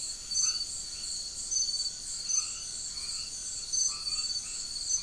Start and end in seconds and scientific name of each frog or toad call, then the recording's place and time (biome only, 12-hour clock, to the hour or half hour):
0.4	0.8	Boana albomarginata
2.2	5.0	Boana albomarginata
Atlantic Forest, ~10pm